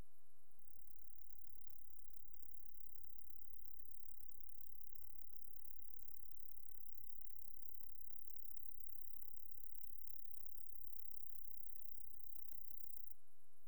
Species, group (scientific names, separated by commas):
Roeseliana roeselii, Orthoptera